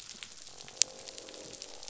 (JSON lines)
{"label": "biophony, croak", "recorder": "SoundTrap 500"}